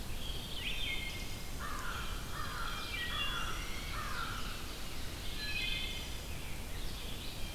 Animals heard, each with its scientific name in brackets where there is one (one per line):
American Crow (Corvus brachyrhynchos)
Ovenbird (Seiurus aurocapilla)
Red-eyed Vireo (Vireo olivaceus)
Rose-breasted Grosbeak (Pheucticus ludovicianus)
Wood Thrush (Hylocichla mustelina)
Blue Jay (Cyanocitta cristata)